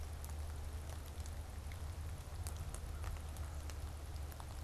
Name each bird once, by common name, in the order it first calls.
American Crow